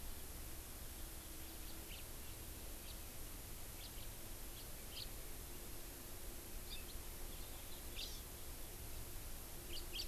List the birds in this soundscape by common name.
House Finch, Hawaii Amakihi